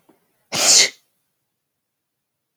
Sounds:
Sneeze